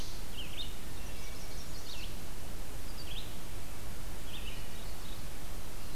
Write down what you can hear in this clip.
Red-eyed Vireo, Wood Thrush, Chestnut-sided Warbler